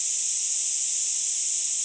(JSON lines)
{"label": "ambient", "recorder": "HydroMoth"}